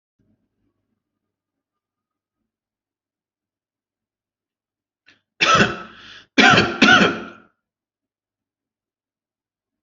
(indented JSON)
{
  "expert_labels": [
    {
      "quality": "good",
      "cough_type": "dry",
      "dyspnea": false,
      "wheezing": false,
      "stridor": false,
      "choking": false,
      "congestion": false,
      "nothing": true,
      "diagnosis": "upper respiratory tract infection",
      "severity": "mild"
    }
  ]
}